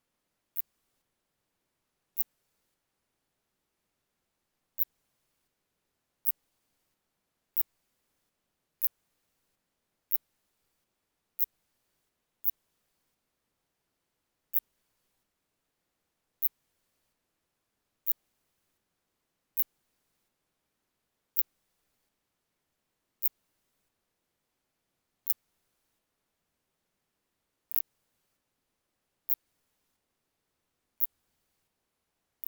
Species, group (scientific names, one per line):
Phaneroptera nana
Orthoptera